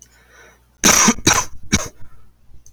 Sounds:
Cough